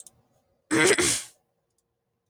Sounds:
Throat clearing